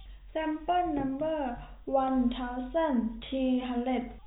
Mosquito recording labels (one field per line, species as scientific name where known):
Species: no mosquito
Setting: cup